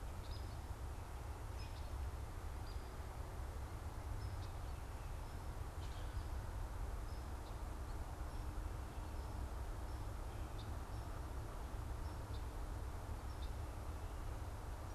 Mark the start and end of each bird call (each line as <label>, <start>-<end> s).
Hairy Woodpecker (Dryobates villosus), 0.0-4.4 s
Red-winged Blackbird (Agelaius phoeniceus), 10.5-13.6 s